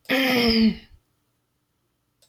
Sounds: Throat clearing